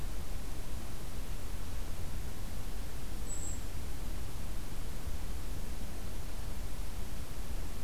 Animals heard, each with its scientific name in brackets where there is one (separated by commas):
Golden-crowned Kinglet (Regulus satrapa)